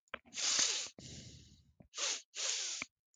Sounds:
Sniff